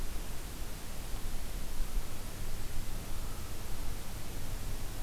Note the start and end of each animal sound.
3.0s-3.6s: American Crow (Corvus brachyrhynchos)

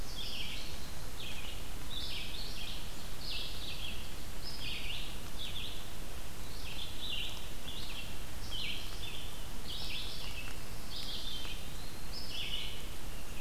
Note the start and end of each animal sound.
0.0s-13.4s: Red-eyed Vireo (Vireo olivaceus)
11.1s-12.3s: Eastern Wood-Pewee (Contopus virens)

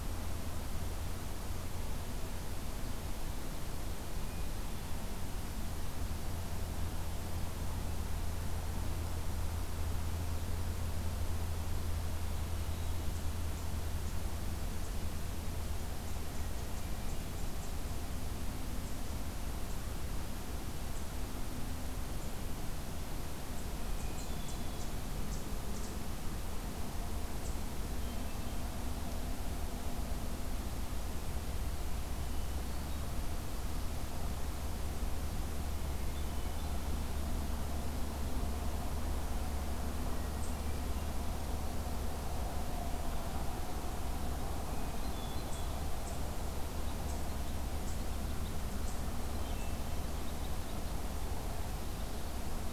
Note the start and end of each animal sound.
3.9s-4.7s: Hermit Thrush (Catharus guttatus)
23.9s-24.9s: Hermit Thrush (Catharus guttatus)
27.9s-28.7s: Hermit Thrush (Catharus guttatus)
32.2s-33.2s: Hermit Thrush (Catharus guttatus)
35.8s-36.7s: Hermit Thrush (Catharus guttatus)
40.0s-41.0s: Hermit Thrush (Catharus guttatus)
44.7s-45.8s: Hermit Thrush (Catharus guttatus)
49.2s-50.0s: Hermit Thrush (Catharus guttatus)

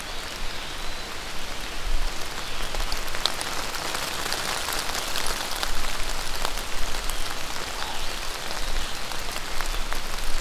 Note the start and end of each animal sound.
0.2s-1.1s: Eastern Wood-Pewee (Contopus virens)
7.7s-8.0s: Common Raven (Corvus corax)

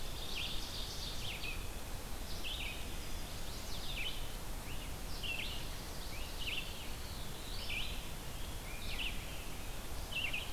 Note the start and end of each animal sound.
0.0s-1.5s: Ovenbird (Seiurus aurocapilla)
0.0s-10.5s: Red-eyed Vireo (Vireo olivaceus)
2.8s-3.8s: Chestnut-sided Warbler (Setophaga pensylvanica)
6.8s-8.3s: Veery (Catharus fuscescens)
8.2s-10.0s: Scarlet Tanager (Piranga olivacea)

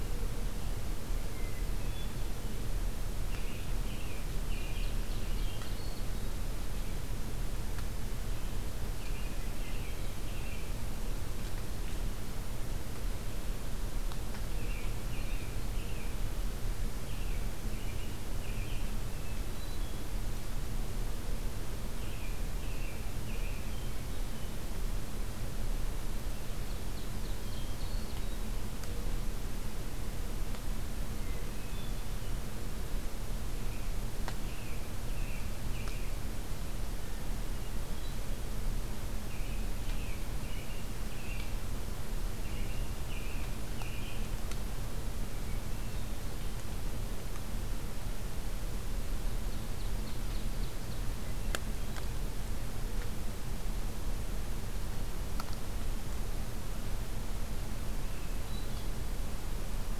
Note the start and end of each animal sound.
1.2s-2.2s: Hermit Thrush (Catharus guttatus)
3.2s-5.7s: American Robin (Turdus migratorius)
4.0s-6.1s: Ovenbird (Seiurus aurocapilla)
5.2s-6.3s: Hermit Thrush (Catharus guttatus)
8.9s-10.8s: American Robin (Turdus migratorius)
14.4s-16.2s: American Robin (Turdus migratorius)
17.0s-18.9s: American Robin (Turdus migratorius)
19.0s-20.1s: Hermit Thrush (Catharus guttatus)
21.8s-23.7s: American Robin (Turdus migratorius)
23.6s-24.7s: Hermit Thrush (Catharus guttatus)
26.6s-27.9s: Ovenbird (Seiurus aurocapilla)
27.4s-28.5s: Hermit Thrush (Catharus guttatus)
31.2s-32.4s: Hermit Thrush (Catharus guttatus)
33.5s-36.1s: American Robin (Turdus migratorius)
36.9s-38.2s: Hermit Thrush (Catharus guttatus)
39.1s-41.6s: American Robin (Turdus migratorius)
42.4s-44.2s: American Robin (Turdus migratorius)
45.3s-46.3s: Hermit Thrush (Catharus guttatus)
49.4s-51.0s: Ovenbird (Seiurus aurocapilla)
51.1s-52.2s: Hermit Thrush (Catharus guttatus)
57.9s-59.1s: Hermit Thrush (Catharus guttatus)

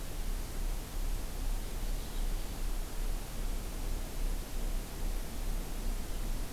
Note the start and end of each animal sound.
1.5s-2.6s: Purple Finch (Haemorhous purpureus)

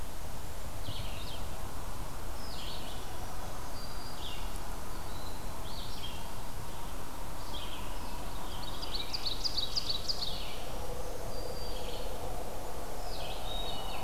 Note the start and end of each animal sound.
0.0s-14.0s: Red-eyed Vireo (Vireo olivaceus)
3.0s-4.5s: Black-throated Green Warbler (Setophaga virens)
8.1s-10.7s: Scarlet Tanager (Piranga olivacea)
8.3s-10.6s: Ovenbird (Seiurus aurocapilla)
10.5s-12.0s: Black-throated Green Warbler (Setophaga virens)
13.0s-14.0s: Hermit Thrush (Catharus guttatus)

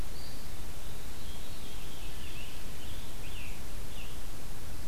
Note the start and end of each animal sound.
0.0s-1.1s: Eastern Wood-Pewee (Contopus virens)
1.0s-2.6s: Veery (Catharus fuscescens)
2.3s-4.4s: Scarlet Tanager (Piranga olivacea)

